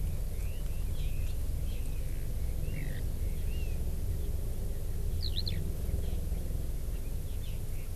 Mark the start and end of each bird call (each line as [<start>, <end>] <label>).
[0.00, 3.80] Red-billed Leiothrix (Leiothrix lutea)
[5.20, 5.60] Eurasian Skylark (Alauda arvensis)